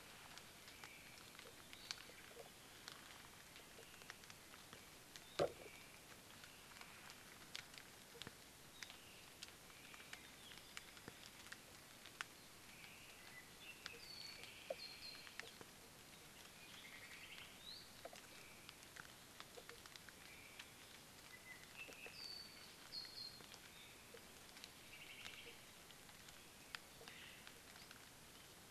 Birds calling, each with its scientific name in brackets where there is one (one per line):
Omao (Myadestes obscurus)
Apapane (Himatione sanguinea)